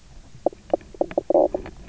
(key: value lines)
label: biophony, knock croak
recorder: SoundTrap 300